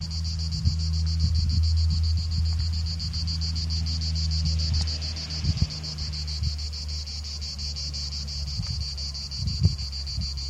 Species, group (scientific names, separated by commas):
Cicada orni, Cicadidae